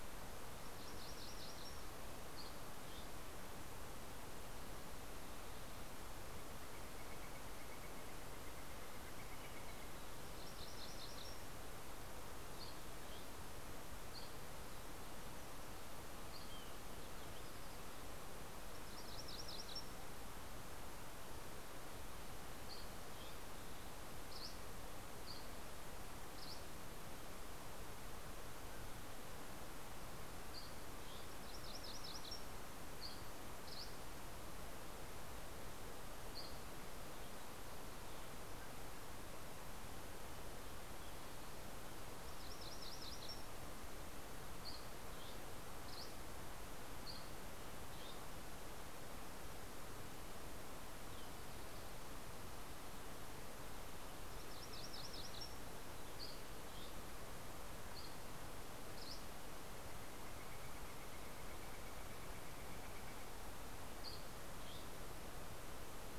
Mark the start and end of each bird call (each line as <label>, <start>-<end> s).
MacGillivray's Warbler (Geothlypis tolmiei), 0.0-2.3 s
Dusky Flycatcher (Empidonax oberholseri), 2.0-3.4 s
Northern Flicker (Colaptes auratus), 5.7-10.7 s
MacGillivray's Warbler (Geothlypis tolmiei), 9.7-11.8 s
Dusky Flycatcher (Empidonax oberholseri), 12.1-17.1 s
MacGillivray's Warbler (Geothlypis tolmiei), 18.6-20.4 s
Dusky Flycatcher (Empidonax oberholseri), 21.9-27.4 s
Dusky Flycatcher (Empidonax oberholseri), 29.7-37.0 s
MacGillivray's Warbler (Geothlypis tolmiei), 30.5-33.0 s
MacGillivray's Warbler (Geothlypis tolmiei), 41.8-43.9 s
Dusky Flycatcher (Empidonax oberholseri), 44.3-48.8 s
MacGillivray's Warbler (Geothlypis tolmiei), 54.0-55.6 s
Dusky Flycatcher (Empidonax oberholseri), 55.8-59.6 s
Northern Flicker (Colaptes auratus), 59.1-63.9 s
Dusky Flycatcher (Empidonax oberholseri), 63.4-65.3 s